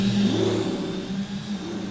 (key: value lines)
label: anthrophony, boat engine
recorder: SoundTrap 500